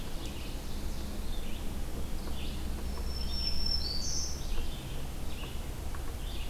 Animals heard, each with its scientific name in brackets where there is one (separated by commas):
Ovenbird (Seiurus aurocapilla), Black-throated Green Warbler (Setophaga virens), Red-eyed Vireo (Vireo olivaceus)